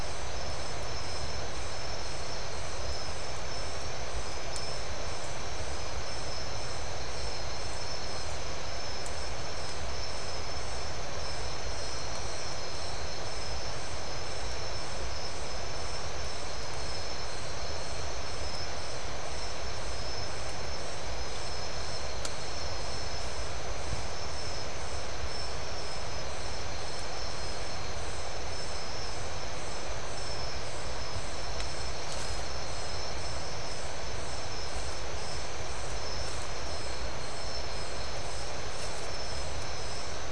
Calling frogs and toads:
none
Atlantic Forest, 2:45am

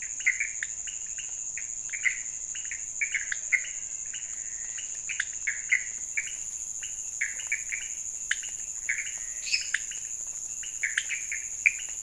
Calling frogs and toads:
Leptodactylus podicipinus, Pithecopus azureus, Physalaemus albonotatus, Dendropsophus minutus
Cerrado, 12:15am

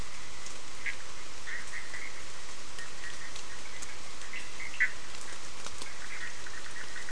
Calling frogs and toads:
Boana bischoffi
Atlantic Forest, 9:15pm

